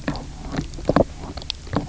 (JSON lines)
{"label": "biophony, knock croak", "recorder": "SoundTrap 300"}